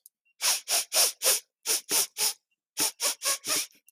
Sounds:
Sniff